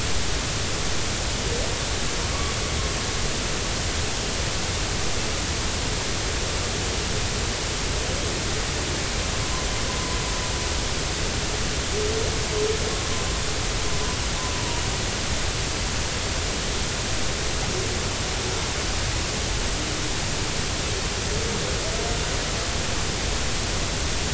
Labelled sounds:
9.4	9.7	humpback whale, 0.96 to 1.1 kHz

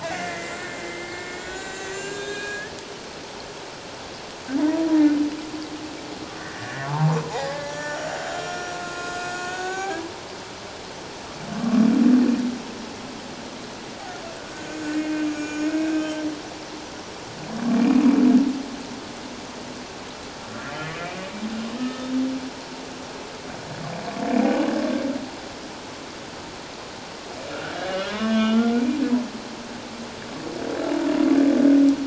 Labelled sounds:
0.0	2.7	humpback whale, 1.3 to 7.4 kHz
4.6	4.9	humpback whale, 0.88 to 1.0 kHz
6.4	10.0	humpback whale, 0.78 to 7.0 kHz
14.5	16.1	humpback whale, 1.4 to 6.8 kHz
17.8	18.0	humpback whale, 2.3 to 2.5 kHz
20.7	21.2	humpback whale, 1.5 to 3.2 kHz
21.8	22.1	humpback whale, 1.2 to 1.8 kHz
24.5	24.7	humpback whale, 2.8 to 2.9 kHz
28.1	28.8	humpback whale, 0.97 to 3.4 kHz

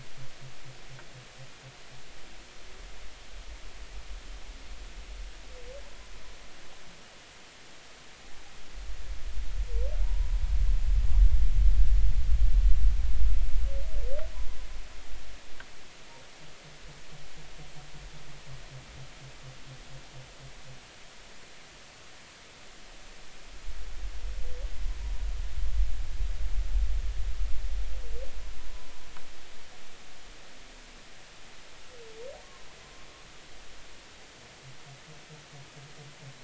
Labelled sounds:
10.0	10.4	humpback whale, 0.86 to 1.0 kHz
32.4	32.7	humpback whale, 0.99 to 1.2 kHz

